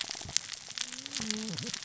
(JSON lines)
{"label": "biophony, cascading saw", "recorder": "SoundTrap 600 or HydroMoth"}